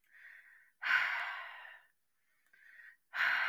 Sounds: Sigh